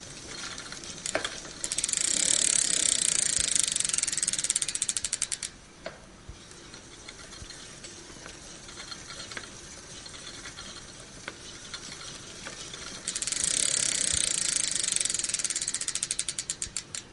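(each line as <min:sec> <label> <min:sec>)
0:01.5 Clicking sounds from a rotating wheel occur frequently at first, then the intervals between clicks lengthen as the wheel slows down, and the sound fades away. 0:13.0
0:13.1 Clicking sounds from a rotating wheel occur frequently at first, then the intervals between the clicks lengthen as the wheel slows down, and the sound eventually fades away. 0:17.1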